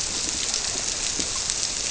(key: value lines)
label: biophony
recorder: SoundTrap 300